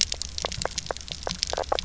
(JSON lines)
{"label": "biophony, knock croak", "recorder": "SoundTrap 300"}